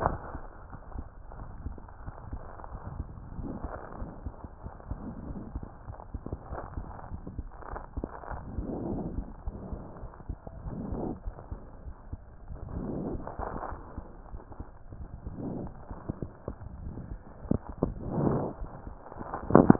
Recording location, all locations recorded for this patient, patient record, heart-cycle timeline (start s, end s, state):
aortic valve (AV)
aortic valve (AV)+pulmonary valve (PV)+tricuspid valve (TV)+mitral valve (MV)
#Age: Child
#Sex: Female
#Height: 112.0 cm
#Weight: 23.5 kg
#Pregnancy status: False
#Murmur: Absent
#Murmur locations: nan
#Most audible location: nan
#Systolic murmur timing: nan
#Systolic murmur shape: nan
#Systolic murmur grading: nan
#Systolic murmur pitch: nan
#Systolic murmur quality: nan
#Diastolic murmur timing: nan
#Diastolic murmur shape: nan
#Diastolic murmur grading: nan
#Diastolic murmur pitch: nan
#Diastolic murmur quality: nan
#Outcome: Normal
#Campaign: 2015 screening campaign
0.00	0.11	unannotated
0.11	0.18	S1
0.18	0.30	systole
0.30	0.42	S2
0.42	0.69	diastole
0.69	0.81	S1
0.81	0.91	systole
0.91	1.06	S2
1.06	1.38	diastole
1.38	1.50	S1
1.50	1.60	systole
1.60	1.74	S2
1.74	2.02	diastole
2.02	2.15	S1
2.15	2.29	systole
2.29	2.41	S2
2.41	2.72	diastole
2.72	2.80	S1
2.80	2.92	systole
2.92	3.08	S2
3.08	3.31	diastole
3.31	3.50	S1
3.50	3.61	systole
3.61	3.71	S2
3.71	3.98	diastole
3.98	4.12	S1
4.12	4.22	systole
4.22	4.34	S2
4.34	4.62	diastole
4.62	4.76	S1
4.76	4.88	systole
4.88	4.99	S2
4.99	5.28	diastole
5.28	5.42	S1
5.42	5.52	systole
5.52	5.64	S2
5.64	5.86	diastole
5.86	6.01	S1
6.01	6.10	systole
6.10	6.22	S2
6.22	6.52	diastole
6.52	6.64	S1
6.64	6.74	systole
6.74	6.88	S2
6.88	7.07	diastole
7.07	7.24	S1
7.24	7.36	systole
7.36	7.49	S2
7.49	7.65	diastole
7.65	19.79	unannotated